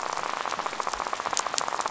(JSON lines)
{"label": "biophony, rattle", "recorder": "SoundTrap 500"}